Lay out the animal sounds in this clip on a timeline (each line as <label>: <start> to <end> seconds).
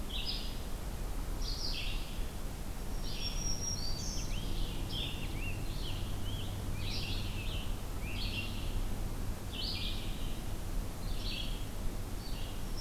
Red-eyed Vireo (Vireo olivaceus): 0.0 to 12.8 seconds
Black-throated Green Warbler (Setophaga virens): 2.7 to 4.6 seconds
Rose-breasted Grosbeak (Pheucticus ludovicianus): 3.7 to 8.4 seconds